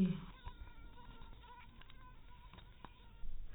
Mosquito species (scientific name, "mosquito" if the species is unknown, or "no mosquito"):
mosquito